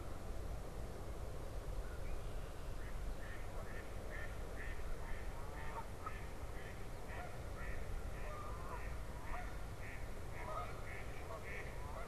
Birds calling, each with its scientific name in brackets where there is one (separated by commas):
American Crow (Corvus brachyrhynchos), Red-winged Blackbird (Agelaius phoeniceus), Mallard (Anas platyrhynchos), Canada Goose (Branta canadensis)